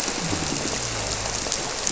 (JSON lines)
{"label": "biophony", "recorder": "SoundTrap 300"}